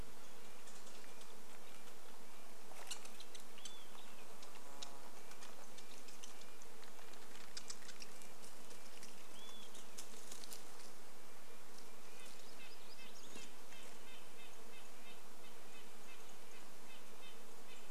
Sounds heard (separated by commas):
unidentified sound, unidentified bird chip note, warbler song, Olive-sided Flycatcher song, insect buzz, Red-breasted Nuthatch song